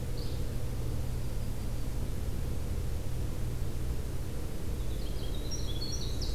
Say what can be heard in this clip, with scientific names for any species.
Empidonax flaviventris, Setophaga coronata, Troglodytes hiemalis